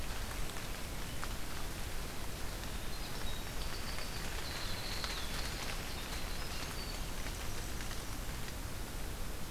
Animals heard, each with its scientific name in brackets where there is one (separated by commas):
Winter Wren (Troglodytes hiemalis)